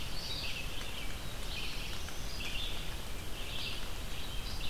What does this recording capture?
Indigo Bunting, Red-eyed Vireo, Black-throated Blue Warbler